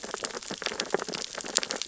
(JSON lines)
{"label": "biophony, sea urchins (Echinidae)", "recorder": "SoundTrap 600 or HydroMoth"}